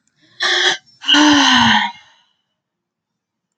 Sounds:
Sigh